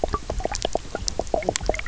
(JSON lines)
{"label": "biophony, knock croak", "recorder": "SoundTrap 300"}